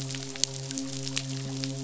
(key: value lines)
label: biophony, midshipman
recorder: SoundTrap 500